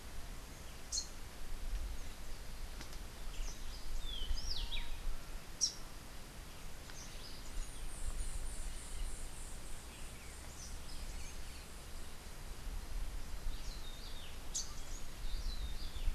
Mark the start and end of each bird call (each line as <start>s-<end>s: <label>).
0.9s-1.2s: Rufous-capped Warbler (Basileuterus rufifrons)
2.9s-5.3s: Rufous-breasted Wren (Pheugopedius rutilus)
5.5s-5.8s: Rufous-capped Warbler (Basileuterus rufifrons)
7.4s-10.1s: White-eared Ground-Sparrow (Melozone leucotis)
10.4s-16.1s: Rufous-breasted Wren (Pheugopedius rutilus)